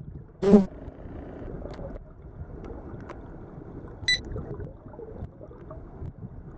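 First an insect can be heard. After that, beeping is heard. An even noise runs about 25 decibels below the sounds.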